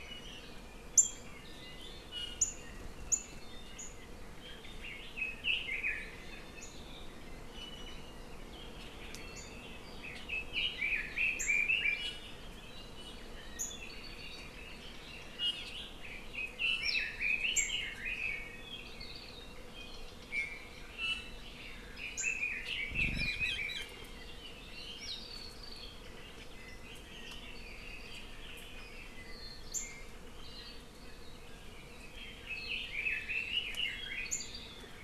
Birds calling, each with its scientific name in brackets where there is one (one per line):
Red-billed Leiothrix (Leiothrix lutea)
Apapane (Himatione sanguinea)
Iiwi (Drepanis coccinea)